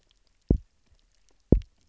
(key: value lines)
label: biophony, double pulse
recorder: SoundTrap 300